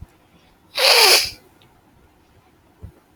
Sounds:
Sniff